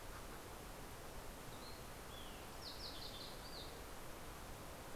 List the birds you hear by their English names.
Fox Sparrow